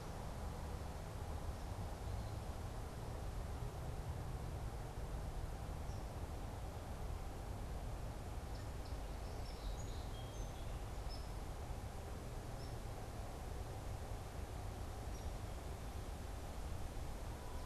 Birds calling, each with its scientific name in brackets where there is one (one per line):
Song Sparrow (Melospiza melodia)
Downy Woodpecker (Dryobates pubescens)